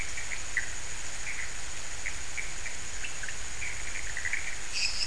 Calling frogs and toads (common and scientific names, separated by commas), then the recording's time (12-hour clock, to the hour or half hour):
pointedbelly frog (Leptodactylus podicipinus), Pithecopus azureus
~4am